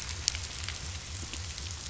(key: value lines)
label: biophony
recorder: SoundTrap 500